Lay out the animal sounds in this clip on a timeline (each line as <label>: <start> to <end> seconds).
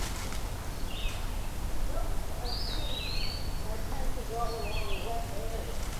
Red-eyed Vireo (Vireo olivaceus): 0.0 to 6.0 seconds
Eastern Wood-Pewee (Contopus virens): 2.4 to 3.9 seconds
Black-throated Green Warbler (Setophaga virens): 4.1 to 5.3 seconds